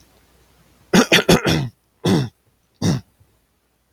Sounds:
Cough